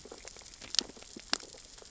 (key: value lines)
label: biophony, sea urchins (Echinidae)
recorder: SoundTrap 600 or HydroMoth